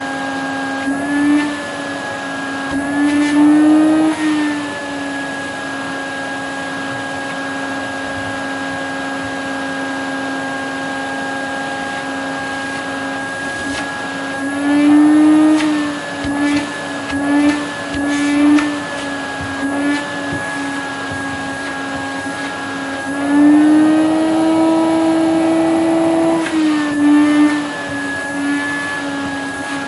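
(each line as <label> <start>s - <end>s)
A loud vacuum cleaner noise with fluctuating pitch. 0.0s - 5.8s
A loud, continuous vacuum cleaner noise with constant pitch and volume. 5.8s - 12.9s
A loud vacuum cleaner noise with the pitch rising and falling multiple times. 12.9s - 21.4s
A loud vacuum cleaner noise with varying pitch. 21.4s - 29.9s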